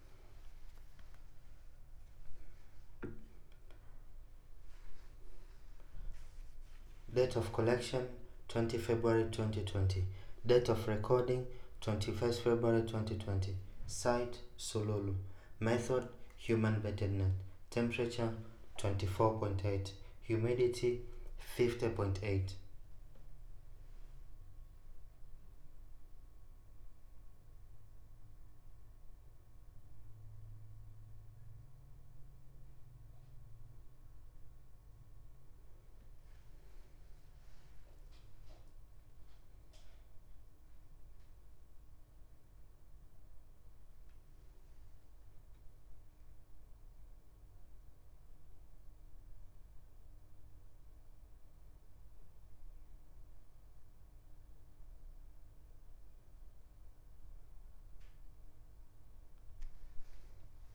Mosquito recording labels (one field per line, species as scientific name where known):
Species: no mosquito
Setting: cup